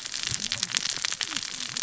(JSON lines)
{"label": "biophony, cascading saw", "recorder": "SoundTrap 600 or HydroMoth"}